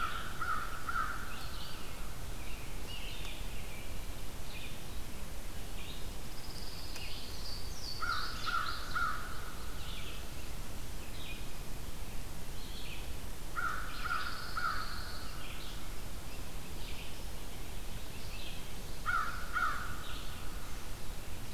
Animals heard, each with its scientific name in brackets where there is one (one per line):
American Robin (Turdus migratorius)
Red-eyed Vireo (Vireo olivaceus)
American Crow (Corvus brachyrhynchos)
Louisiana Waterthrush (Parkesia motacilla)
Pine Warbler (Setophaga pinus)